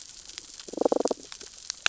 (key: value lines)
label: biophony, damselfish
recorder: SoundTrap 600 or HydroMoth